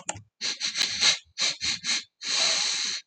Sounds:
Sniff